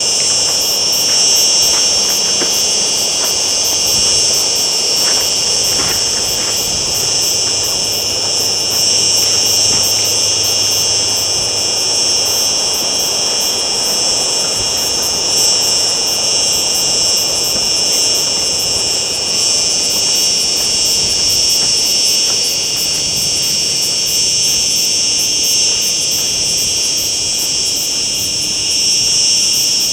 Is the noise high-pitched?
yes